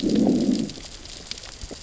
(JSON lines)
{"label": "biophony, growl", "recorder": "SoundTrap 600 or HydroMoth"}